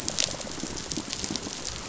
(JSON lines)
{"label": "biophony, rattle response", "recorder": "SoundTrap 500"}